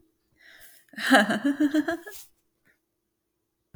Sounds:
Laughter